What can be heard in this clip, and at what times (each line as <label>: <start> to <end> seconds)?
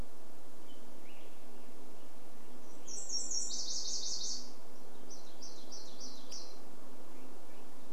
unidentified sound: 0 to 2 seconds
Nashville Warbler song: 2 to 6 seconds
warbler song: 4 to 8 seconds